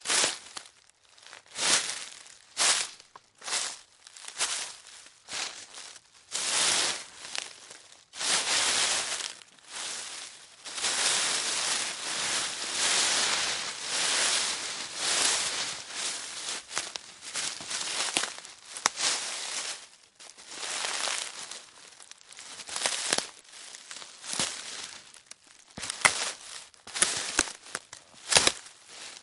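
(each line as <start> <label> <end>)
0.1 Someone is walking in shoes, and the footsteps make sounds on the leaves repeatedly. 29.2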